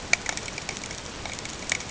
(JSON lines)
{"label": "ambient", "recorder": "HydroMoth"}